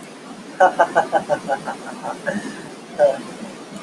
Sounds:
Laughter